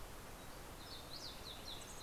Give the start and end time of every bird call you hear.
[0.00, 2.02] Fox Sparrow (Passerella iliaca)
[1.50, 2.02] Mountain Chickadee (Poecile gambeli)

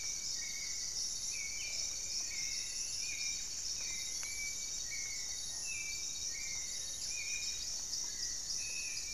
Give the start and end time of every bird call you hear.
[0.00, 7.85] Buff-breasted Wren (Cantorchilus leucotis)
[0.00, 9.13] Gray-fronted Dove (Leptotila rufaxilla)
[0.00, 9.13] Hauxwell's Thrush (Turdus hauxwelli)
[0.75, 3.25] Striped Woodcreeper (Xiphorhynchus obsoletus)
[4.05, 4.45] unidentified bird
[8.05, 8.85] unidentified bird

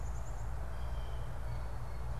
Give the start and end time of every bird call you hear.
[0.00, 2.20] Black-capped Chickadee (Poecile atricapillus)
[0.00, 2.20] Blue Jay (Cyanocitta cristata)

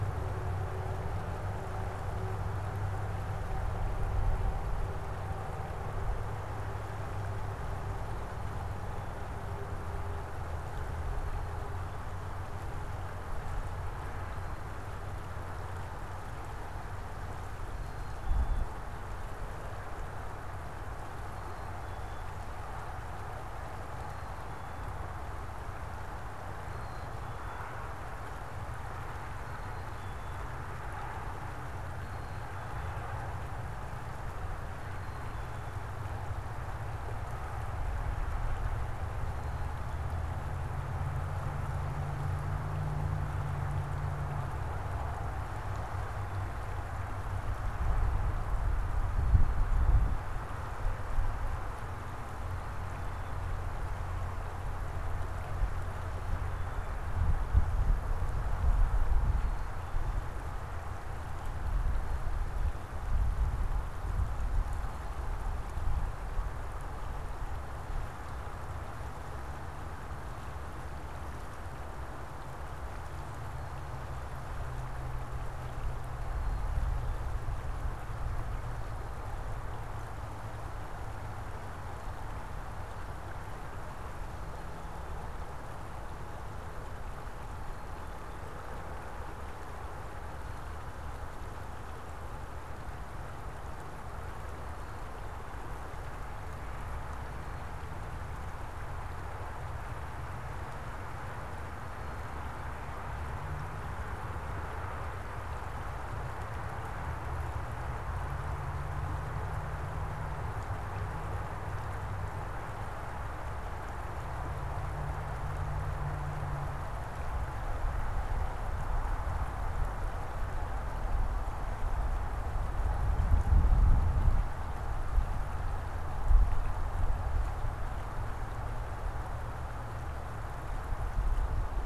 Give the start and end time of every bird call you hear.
[17.60, 40.10] Black-capped Chickadee (Poecile atricapillus)
[52.30, 60.30] Black-capped Chickadee (Poecile atricapillus)

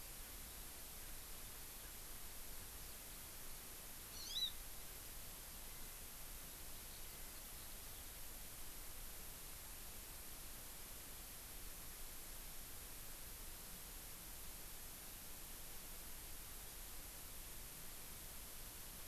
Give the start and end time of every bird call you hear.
[4.09, 4.49] Hawaii Amakihi (Chlorodrepanis virens)
[6.89, 7.79] Eurasian Skylark (Alauda arvensis)

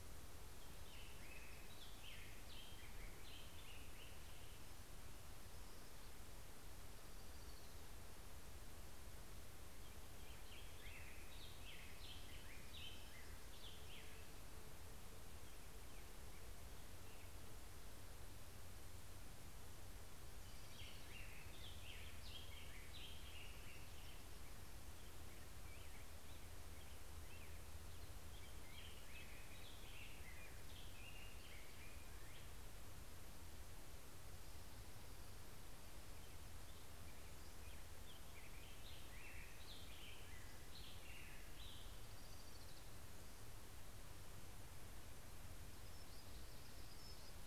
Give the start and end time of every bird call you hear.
[0.00, 5.10] Black-headed Grosbeak (Pheucticus melanocephalus)
[5.90, 8.90] Orange-crowned Warbler (Leiothlypis celata)
[9.60, 15.10] Black-headed Grosbeak (Pheucticus melanocephalus)
[19.30, 22.20] Orange-crowned Warbler (Leiothlypis celata)
[19.70, 33.90] Black-headed Grosbeak (Pheucticus melanocephalus)
[37.80, 42.50] Black-headed Grosbeak (Pheucticus melanocephalus)
[41.10, 44.00] Orange-crowned Warbler (Leiothlypis celata)

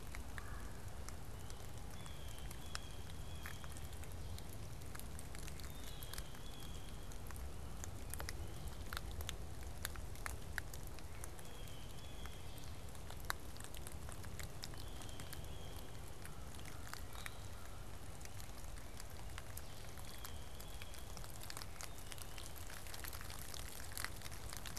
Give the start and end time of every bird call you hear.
[0.34, 0.84] Red-bellied Woodpecker (Melanerpes carolinus)
[1.94, 15.94] Blue Jay (Cyanocitta cristata)
[16.14, 17.94] American Crow (Corvus brachyrhynchos)
[19.44, 20.04] Blue-headed Vireo (Vireo solitarius)
[19.84, 24.78] Blue Jay (Cyanocitta cristata)

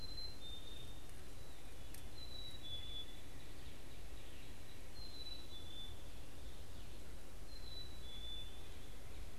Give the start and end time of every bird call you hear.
[0.00, 9.39] Black-capped Chickadee (Poecile atricapillus)
[2.94, 4.74] Northern Cardinal (Cardinalis cardinalis)

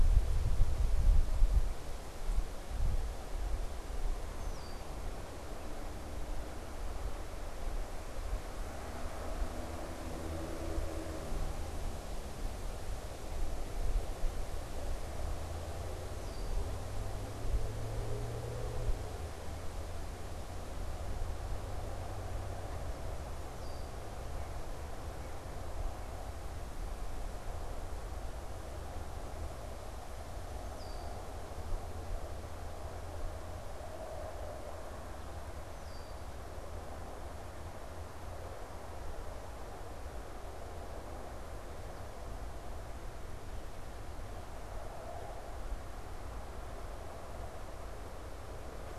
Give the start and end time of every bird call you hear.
[4.23, 5.23] Red-winged Blackbird (Agelaius phoeniceus)
[16.03, 16.73] Red-winged Blackbird (Agelaius phoeniceus)
[23.53, 24.13] Red-winged Blackbird (Agelaius phoeniceus)
[24.23, 26.43] unidentified bird
[30.63, 36.43] Red-winged Blackbird (Agelaius phoeniceus)

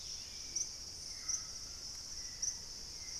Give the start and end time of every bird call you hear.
[0.00, 3.19] Dusky-capped Greenlet (Pachysylvia hypoxantha)
[0.00, 3.19] Hauxwell's Thrush (Turdus hauxwelli)
[0.00, 3.19] White-throated Toucan (Ramphastos tucanus)
[1.72, 3.12] Purple-throated Fruitcrow (Querula purpurata)

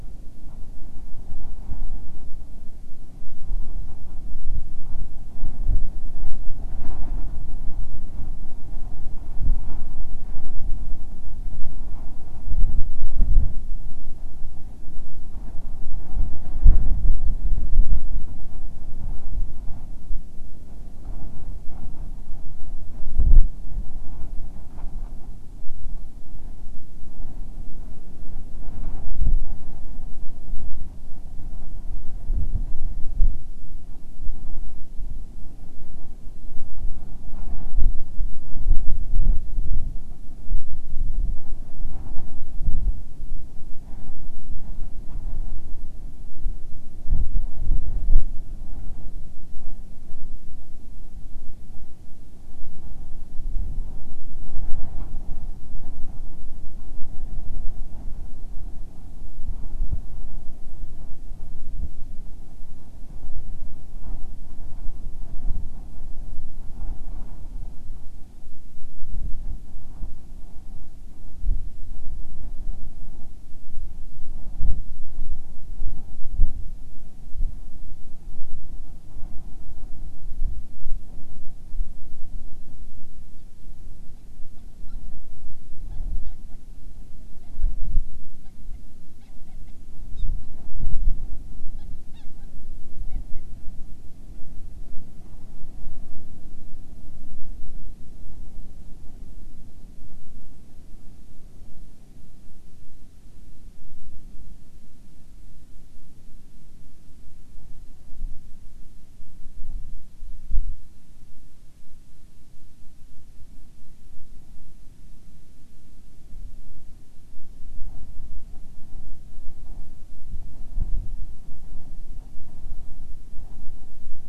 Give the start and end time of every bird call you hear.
[83.27, 85.47] Hawaiian Petrel (Pterodroma sandwichensis)
[85.87, 87.77] Hawaiian Petrel (Pterodroma sandwichensis)
[88.37, 89.77] Hawaiian Petrel (Pterodroma sandwichensis)
[90.07, 93.47] Hawaiian Petrel (Pterodroma sandwichensis)

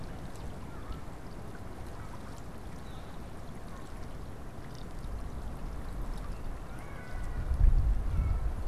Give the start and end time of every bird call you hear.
[2.61, 3.31] Northern Flicker (Colaptes auratus)

